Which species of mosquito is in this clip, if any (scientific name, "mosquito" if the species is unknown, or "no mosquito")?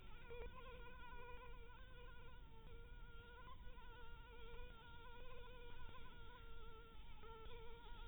Anopheles maculatus